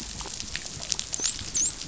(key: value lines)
label: biophony, dolphin
recorder: SoundTrap 500